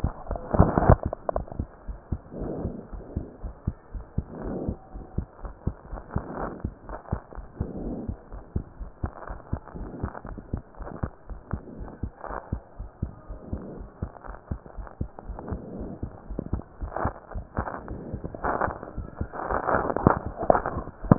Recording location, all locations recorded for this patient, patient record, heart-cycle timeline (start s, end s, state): pulmonary valve (PV)
aortic valve (AV)+pulmonary valve (PV)+tricuspid valve (TV)+mitral valve (MV)
#Age: Child
#Sex: Female
#Height: 137.0 cm
#Weight: 31.4 kg
#Pregnancy status: False
#Murmur: Absent
#Murmur locations: nan
#Most audible location: nan
#Systolic murmur timing: nan
#Systolic murmur shape: nan
#Systolic murmur grading: nan
#Systolic murmur pitch: nan
#Systolic murmur quality: nan
#Diastolic murmur timing: nan
#Diastolic murmur shape: nan
#Diastolic murmur grading: nan
#Diastolic murmur pitch: nan
#Diastolic murmur quality: nan
#Outcome: Abnormal
#Campaign: 2015 screening campaign
0.00	1.86	unannotated
1.86	1.98	S1
1.98	2.10	systole
2.10	2.20	S2
2.20	2.38	diastole
2.38	2.52	S1
2.52	2.58	systole
2.58	2.74	S2
2.74	2.92	diastole
2.92	3.04	S1
3.04	3.16	systole
3.16	3.28	S2
3.28	3.44	diastole
3.44	3.54	S1
3.54	3.66	systole
3.66	3.76	S2
3.76	3.94	diastole
3.94	4.04	S1
4.04	4.14	systole
4.14	4.26	S2
4.26	4.42	diastole
4.42	4.58	S1
4.58	4.64	systole
4.64	4.76	S2
4.76	4.94	diastole
4.94	5.04	S1
5.04	5.14	systole
5.14	5.26	S2
5.26	5.44	diastole
5.44	5.54	S1
5.54	5.66	systole
5.66	5.76	S2
5.76	5.92	diastole
5.92	6.02	S1
6.02	6.12	systole
6.12	6.24	S2
6.24	6.38	diastole
6.38	6.50	S1
6.50	6.60	systole
6.60	6.74	S2
6.74	6.90	diastole
6.90	6.98	S1
6.98	7.08	systole
7.08	7.20	S2
7.20	7.38	diastole
7.38	7.48	S1
7.48	7.56	systole
7.56	7.68	S2
7.68	7.80	diastole
7.80	7.98	S1
7.98	8.08	systole
8.08	8.18	S2
8.18	8.34	diastole
8.34	8.42	S1
8.42	8.52	systole
8.52	8.66	S2
8.66	8.82	diastole
8.82	8.92	S1
8.92	9.04	systole
9.04	9.14	S2
9.14	9.30	diastole
9.30	9.40	S1
9.40	9.50	systole
9.50	9.60	S2
9.60	9.76	diastole
9.76	9.88	S1
9.88	10.02	systole
10.02	10.12	S2
10.12	10.30	diastole
10.30	10.42	S1
10.42	10.54	systole
10.54	10.64	S2
10.64	10.79	diastole
10.79	10.92	S1
10.92	11.04	systole
11.04	11.14	S2
11.14	11.28	diastole
11.28	11.42	S1
11.42	11.51	systole
11.51	11.64	S2
11.64	11.79	diastole
11.79	11.89	S1
11.89	12.01	systole
12.01	12.12	S2
12.12	12.28	diastole
12.28	12.38	S1
12.38	12.50	systole
12.50	12.62	S2
12.62	12.76	diastole
12.76	12.88	S1
12.88	13.00	systole
13.00	13.14	S2
13.14	13.28	diastole
13.28	13.38	S1
13.38	13.50	systole
13.50	13.62	S2
13.62	13.76	diastole
13.76	13.88	S1
13.88	14.00	systole
14.00	14.10	S2
14.10	14.25	diastole
14.25	14.36	S1
14.36	14.49	systole
14.49	14.62	S2
14.62	14.76	diastole
14.76	14.86	S1
14.86	14.98	systole
14.98	15.12	S2
15.12	15.27	diastole
15.27	15.37	S1
15.37	15.50	systole
15.50	15.62	S2
15.62	15.78	diastole
15.78	21.18	unannotated